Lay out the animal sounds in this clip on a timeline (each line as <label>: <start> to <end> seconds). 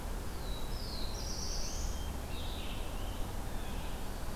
Blue-headed Vireo (Vireo solitarius): 0.0 to 4.4 seconds
Red-eyed Vireo (Vireo olivaceus): 0.0 to 4.4 seconds
Black-throated Blue Warbler (Setophaga caerulescens): 0.1 to 2.2 seconds